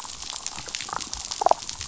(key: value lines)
label: biophony, damselfish
recorder: SoundTrap 500